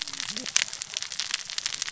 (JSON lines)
{"label": "biophony, cascading saw", "recorder": "SoundTrap 600 or HydroMoth"}